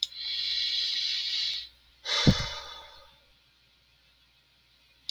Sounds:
Sigh